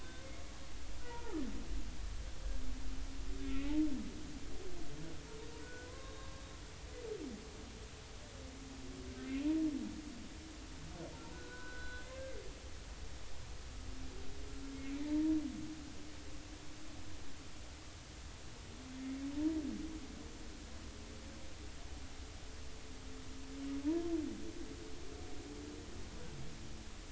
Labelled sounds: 0.0	1.5	humpback whale, 0.80 to 1.6 kHz
3.4	3.7	humpback whale, 2.4 to 2.6 kHz
5.6	6.4	humpback whale, 0.96 to 3.8 kHz
11.3	12.0	humpback whale, 0.96 to 3.5 kHz

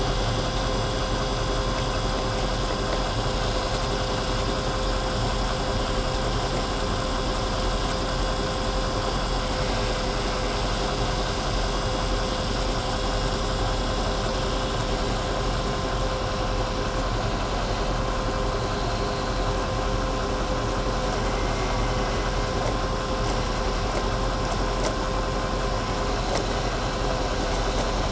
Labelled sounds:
21.1	22.7	vessel noise, 1.6 to 2.3 kHz

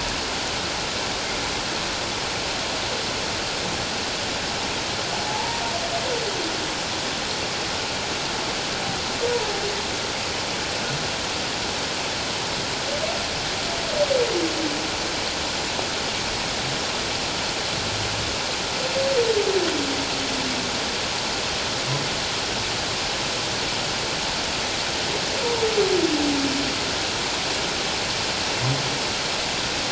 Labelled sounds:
5.3	5.6	humpback whale, 0.81 to 1.0 kHz

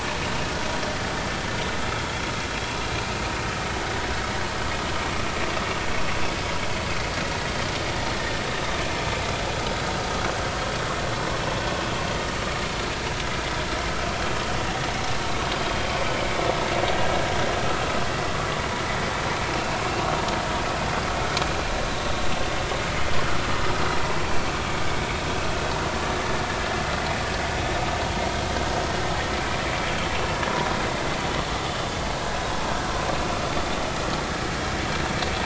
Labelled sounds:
3.5	3.8	vessel noise, 3.0 to 3.1 kHz

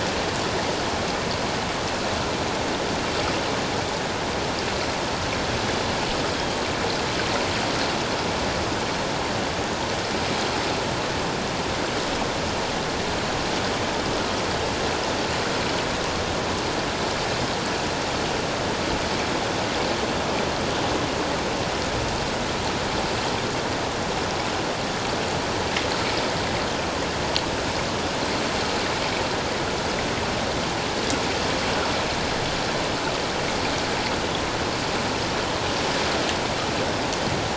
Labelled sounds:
6.3	6.6	Pacific white-sided dolphin, 3.2 to 3.3 kHz

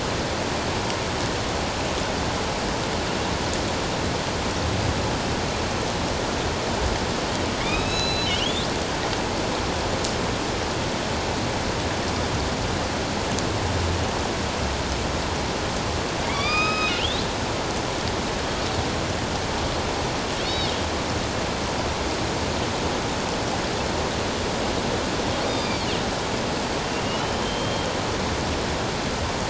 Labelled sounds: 7.6	8.7	killer whale, northern resident, A clan, AB subclan, 2.2 to 6.7 kHz
16.2	17.2	killer whale, northern resident, A clan, AB subclan, 1.1 to 5.1 kHz
20.4	20.7	killer whale, northern resident, A clan, AB subclan, 3.6 to 4.7 kHz
25.4	25.9	killer whale, northern resident, A clan, AB subclan, 3.5 to 5.0 kHz
27.0	27.9	killer whale, northern resident, A clan, AB subclan, 2.8 to 3.2 kHz

